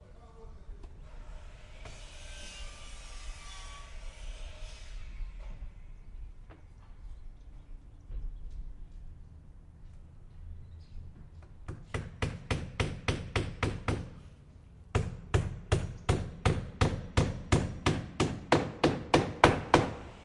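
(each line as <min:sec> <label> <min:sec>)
0:00.0 A person is speaking softly in the distance. 0:08.7
0:00.0 Occasional sharp electric sawing sounds from a distance. 0:08.7
0:11.9 A loud hammering sound with increasing intensity. 0:20.2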